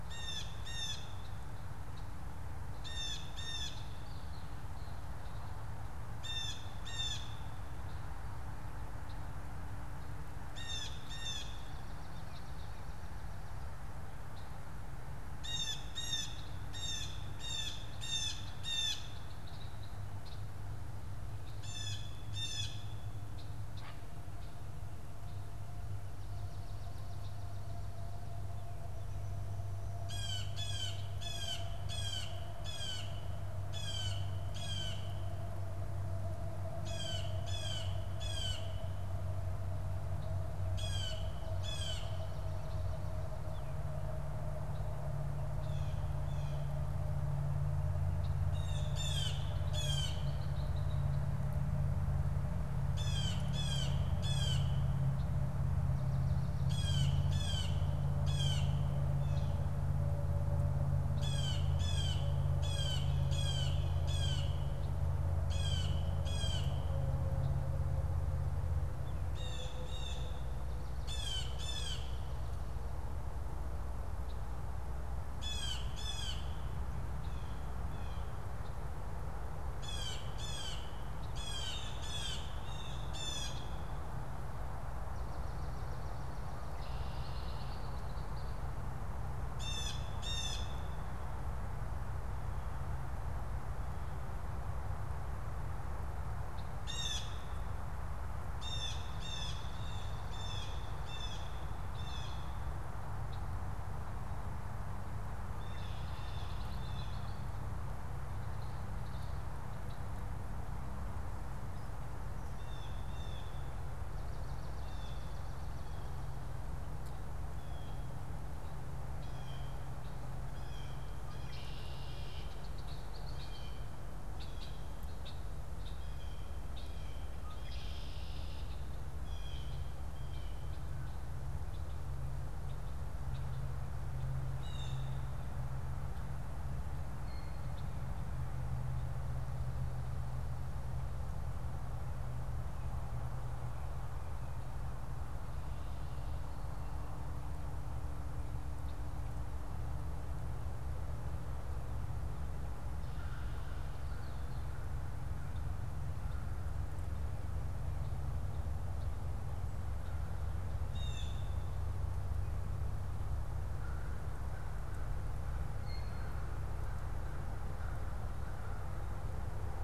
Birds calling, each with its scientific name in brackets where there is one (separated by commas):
Red-winged Blackbird (Agelaius phoeniceus), Blue Jay (Cyanocitta cristata), American Crow (Corvus brachyrhynchos)